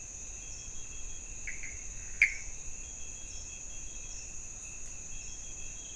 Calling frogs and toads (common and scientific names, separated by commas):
Pithecopus azureus